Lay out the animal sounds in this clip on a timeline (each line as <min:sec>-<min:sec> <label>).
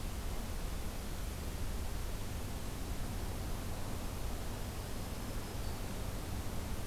0:04.7-0:05.9 Black-throated Green Warbler (Setophaga virens)